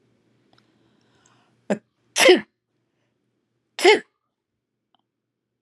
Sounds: Sneeze